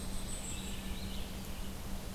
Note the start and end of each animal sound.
[0.00, 0.92] Blackpoll Warbler (Setophaga striata)
[0.00, 2.14] Red-eyed Vireo (Vireo olivaceus)
[0.36, 1.20] Wood Thrush (Hylocichla mustelina)

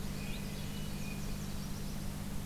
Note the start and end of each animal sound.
[0.00, 1.33] Blue Jay (Cyanocitta cristata)
[0.00, 2.29] Nashville Warbler (Leiothlypis ruficapilla)
[0.04, 1.30] Swainson's Thrush (Catharus ustulatus)

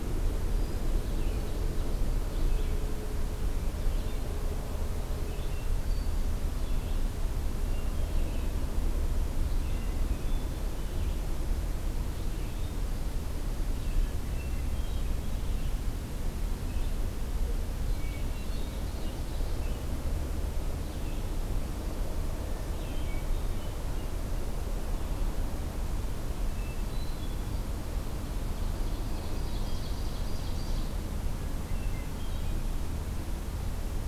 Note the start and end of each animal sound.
[0.00, 33.80] Red-eyed Vireo (Vireo olivaceus)
[5.29, 6.33] Hermit Thrush (Catharus guttatus)
[7.40, 8.77] Hermit Thrush (Catharus guttatus)
[9.36, 10.81] Hermit Thrush (Catharus guttatus)
[14.09, 15.24] Hermit Thrush (Catharus guttatus)
[17.79, 19.48] Hermit Thrush (Catharus guttatus)
[18.29, 19.78] Ovenbird (Seiurus aurocapilla)
[22.59, 24.20] Hermit Thrush (Catharus guttatus)
[26.23, 27.81] Hermit Thrush (Catharus guttatus)
[28.78, 31.10] Ovenbird (Seiurus aurocapilla)
[31.48, 32.90] Hermit Thrush (Catharus guttatus)

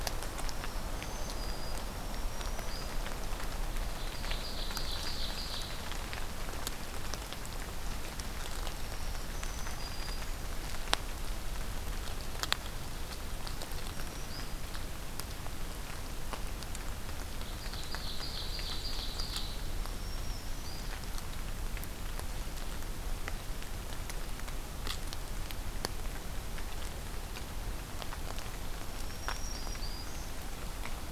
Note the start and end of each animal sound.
[0.34, 3.15] Black-throated Green Warbler (Setophaga virens)
[3.92, 5.89] Ovenbird (Seiurus aurocapilla)
[8.73, 10.48] Black-throated Green Warbler (Setophaga virens)
[13.65, 14.57] Black-throated Green Warbler (Setophaga virens)
[17.46, 19.68] Ovenbird (Seiurus aurocapilla)
[19.73, 21.00] Black-throated Green Warbler (Setophaga virens)
[28.77, 30.18] Black-throated Green Warbler (Setophaga virens)

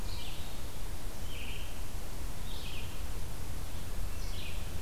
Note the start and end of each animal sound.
[0.00, 4.82] Red-eyed Vireo (Vireo olivaceus)

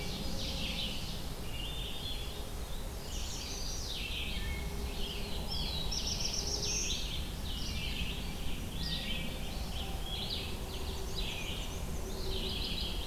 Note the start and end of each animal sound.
[0.00, 1.44] Ovenbird (Seiurus aurocapilla)
[0.00, 13.06] Red-eyed Vireo (Vireo olivaceus)
[1.84, 2.56] Hermit Thrush (Catharus guttatus)
[2.86, 4.04] Chestnut-sided Warbler (Setophaga pensylvanica)
[4.04, 4.93] Wood Thrush (Hylocichla mustelina)
[4.90, 7.20] Black-throated Blue Warbler (Setophaga caerulescens)
[10.48, 12.35] Black-and-white Warbler (Mniotilta varia)

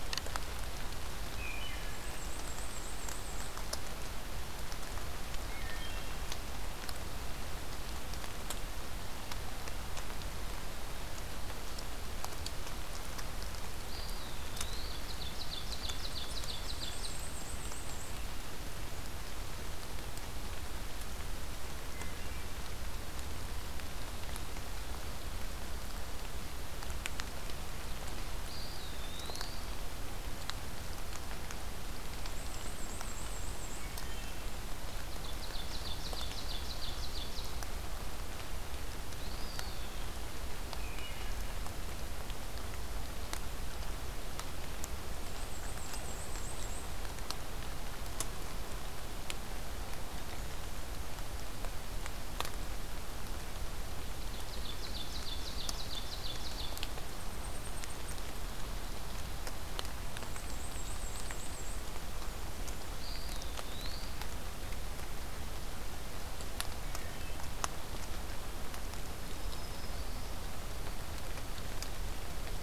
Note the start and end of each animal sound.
[1.35, 2.05] Wood Thrush (Hylocichla mustelina)
[1.71, 3.57] Black-and-white Warbler (Mniotilta varia)
[5.42, 6.25] Wood Thrush (Hylocichla mustelina)
[13.76, 14.96] Eastern Wood-Pewee (Contopus virens)
[14.95, 17.19] Ovenbird (Seiurus aurocapilla)
[16.42, 18.14] Black-and-white Warbler (Mniotilta varia)
[28.39, 29.66] Eastern Wood-Pewee (Contopus virens)
[32.08, 33.91] Black-and-white Warbler (Mniotilta varia)
[33.85, 34.55] Wood Thrush (Hylocichla mustelina)
[35.01, 37.64] Ovenbird (Seiurus aurocapilla)
[39.03, 40.16] Eastern Wood-Pewee (Contopus virens)
[40.60, 41.43] Wood Thrush (Hylocichla mustelina)
[45.19, 46.95] Black-and-white Warbler (Mniotilta varia)
[54.08, 56.92] Ovenbird (Seiurus aurocapilla)
[60.11, 61.77] Black-and-white Warbler (Mniotilta varia)
[62.73, 64.17] Eastern Wood-Pewee (Contopus virens)
[68.95, 70.34] Black-throated Green Warbler (Setophaga virens)

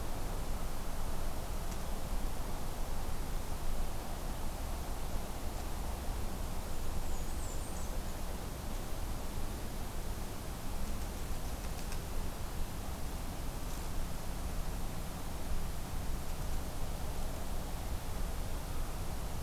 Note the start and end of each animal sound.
[6.73, 8.00] Blackburnian Warbler (Setophaga fusca)

